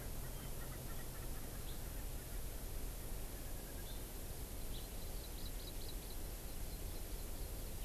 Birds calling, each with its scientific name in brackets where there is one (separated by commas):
Hawaii Amakihi (Chlorodrepanis virens), Erckel's Francolin (Pternistis erckelii), House Finch (Haemorhous mexicanus)